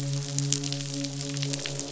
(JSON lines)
{"label": "biophony, midshipman", "recorder": "SoundTrap 500"}
{"label": "biophony, croak", "recorder": "SoundTrap 500"}